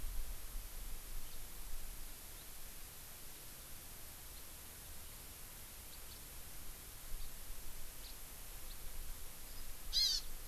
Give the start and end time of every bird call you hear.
1.3s-1.4s: House Finch (Haemorhous mexicanus)
4.3s-4.4s: House Finch (Haemorhous mexicanus)
5.9s-6.2s: House Finch (Haemorhous mexicanus)
7.2s-7.3s: House Finch (Haemorhous mexicanus)
8.0s-8.2s: House Finch (Haemorhous mexicanus)
8.7s-8.8s: House Finch (Haemorhous mexicanus)
9.9s-10.2s: Hawaii Amakihi (Chlorodrepanis virens)

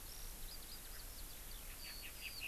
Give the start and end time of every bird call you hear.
0.0s-2.5s: Eurasian Skylark (Alauda arvensis)

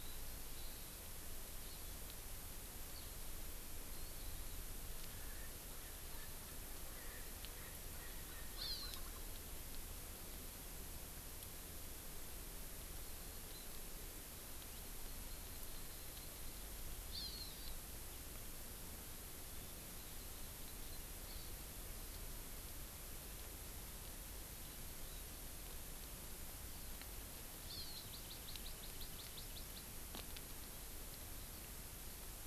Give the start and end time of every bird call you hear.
0.5s-1.0s: Hawaii Amakihi (Chlorodrepanis virens)
1.6s-1.9s: Hawaii Amakihi (Chlorodrepanis virens)
5.1s-9.2s: Erckel's Francolin (Pternistis erckelii)
8.6s-9.0s: Hawaii Amakihi (Chlorodrepanis virens)
14.8s-16.7s: Hawaii Amakihi (Chlorodrepanis virens)
17.1s-17.7s: Hawaii Amakihi (Chlorodrepanis virens)
19.9s-21.5s: Hawaii Amakihi (Chlorodrepanis virens)
27.7s-29.9s: Hawaii Amakihi (Chlorodrepanis virens)

